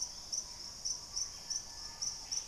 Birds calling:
Screaming Piha (Lipaugus vociferans)
Gray Antbird (Cercomacra cinerascens)

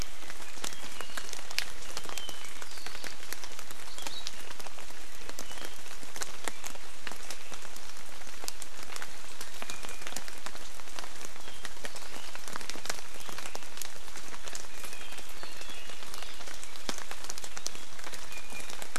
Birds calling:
Iiwi (Drepanis coccinea)

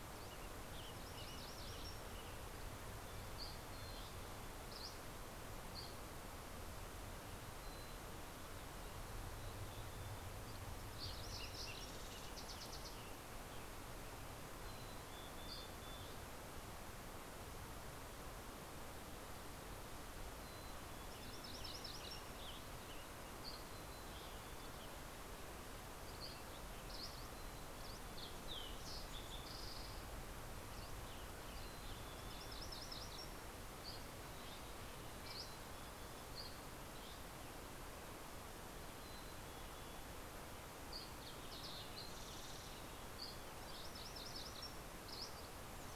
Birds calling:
Western Tanager (Piranga ludoviciana)
Dusky Flycatcher (Empidonax oberholseri)
MacGillivray's Warbler (Geothlypis tolmiei)
Mountain Chickadee (Poecile gambeli)
Fox Sparrow (Passerella iliaca)
Green-tailed Towhee (Pipilo chlorurus)

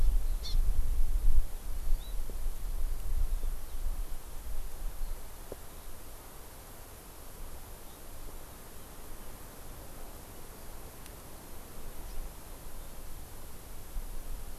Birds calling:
Hawaii Amakihi (Chlorodrepanis virens)
House Finch (Haemorhous mexicanus)

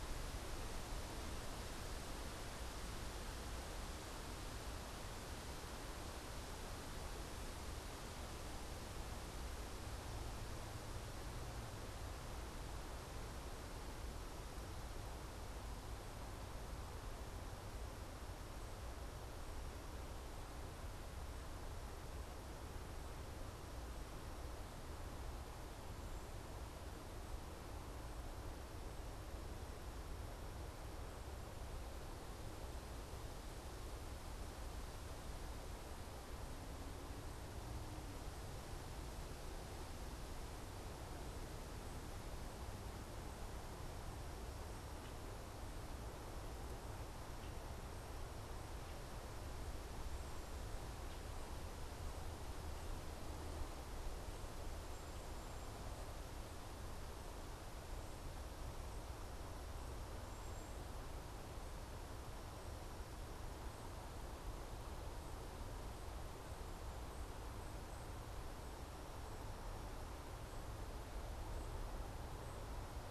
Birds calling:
Cedar Waxwing (Bombycilla cedrorum)

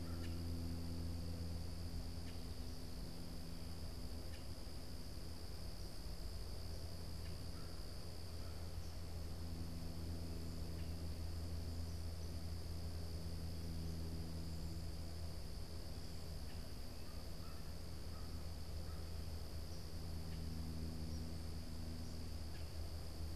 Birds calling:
American Crow (Corvus brachyrhynchos)
Eastern Kingbird (Tyrannus tyrannus)
Common Grackle (Quiscalus quiscula)

